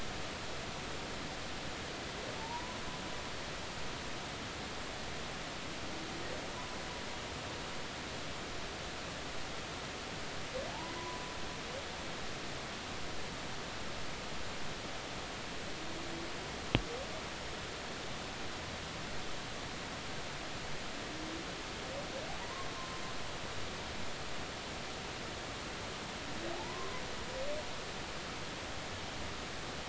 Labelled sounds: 2.4	2.8	humpback whale, 0.83 to 1.0 kHz
10.7	11.2	humpback whale, 0.80 to 1.1 kHz
22.4	23.0	humpback whale, 0.86 to 1.1 kHz
26.5	27.0	humpback whale, 0.80 to 1.1 kHz

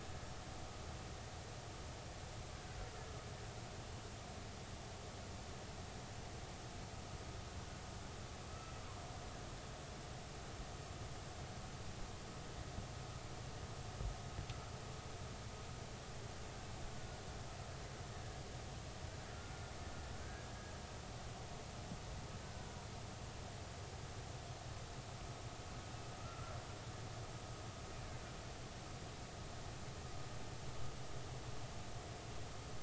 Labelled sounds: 8.5	8.8	killer whale, Bigg's (transient), 1.2 to 1.4 kHz
16.9	17.2	killer whale, Bigg's (transient), 1.4 to 1.5 kHz
19.3	19.5	killer whale, Bigg's (transient), 1.3 to 1.5 kHz
20.2	20.5	killer whale, Bigg's (transient), 1.5 to 1.7 kHz
22.4	22.7	killer whale, Bigg's (transient), 1.4 to 1.6 kHz
26.2	26.6	killer whale, Bigg's (transient), 1.2 to 1.4 kHz

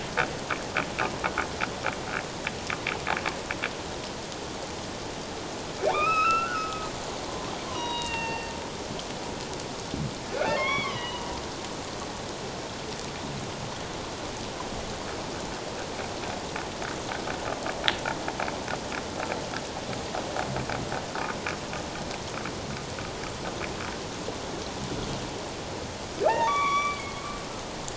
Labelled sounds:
5.8	6.8	humpback whale, 1.0 to 5.4 kHz
7.7	8.5	humpback whale, 0.78 to 4.6 kHz
10.5	11.4	humpback whale, 0.91 to 3.5 kHz
26.3	27.2	humpback whale, 0.78 to 5.8 kHz

